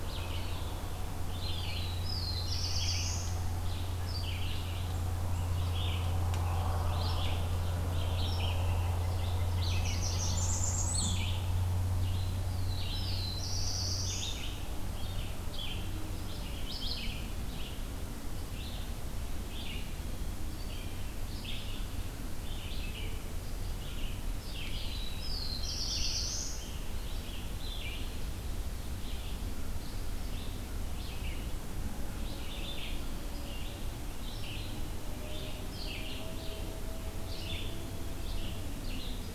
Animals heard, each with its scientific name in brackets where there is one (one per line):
Blackburnian Warbler (Setophaga fusca)
Black-throated Blue Warbler (Setophaga caerulescens)
Red-eyed Vireo (Vireo olivaceus)
White-breasted Nuthatch (Sitta carolinensis)